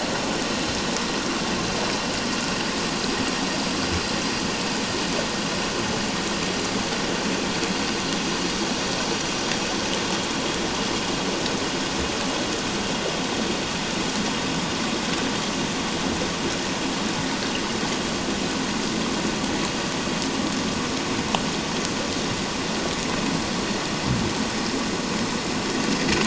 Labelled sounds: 1.2	1.4	water noise, 1.1 to 1.3 kHz

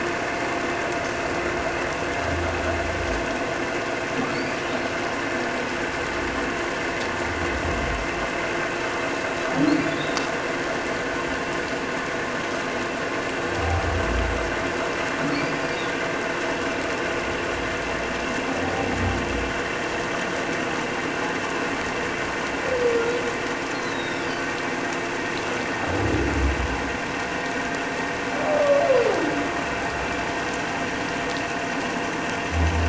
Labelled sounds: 4.3	4.6	humpback whale, 4.2 to 4.9 kHz
9.9	10.2	humpback whale, 3.4 to 3.9 kHz
15.3	15.7	humpback whale, 4.2 to 5.0 kHz
23.7	24.3	humpback whale, 3.3 to 4.3 kHz

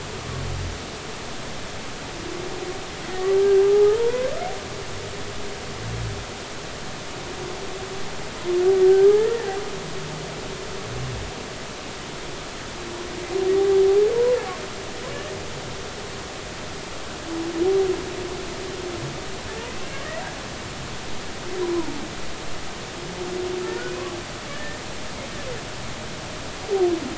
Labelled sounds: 3.1	4.3	humpback whale, 0.80 to 2.0 kHz
8.8	9.5	humpback whale, 1.5 to 1.9 kHz
13.5	13.8	humpback whale, 0.80 to 0.90 kHz
24.5	24.8	humpback whale, 1.7 to 1.9 kHz

